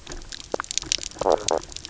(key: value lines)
label: biophony, knock croak
recorder: SoundTrap 300